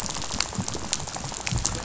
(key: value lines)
label: biophony, rattle
recorder: SoundTrap 500